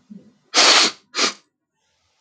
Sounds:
Sniff